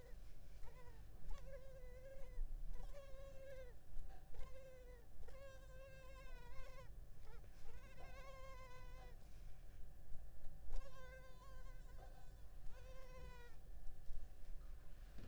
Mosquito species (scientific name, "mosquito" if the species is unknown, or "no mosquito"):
Culex pipiens complex